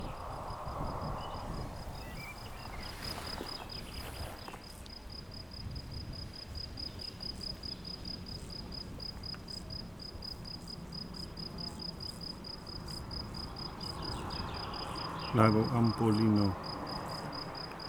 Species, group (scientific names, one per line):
Gryllus campestris
Orthoptera